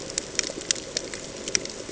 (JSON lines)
{"label": "ambient", "recorder": "HydroMoth"}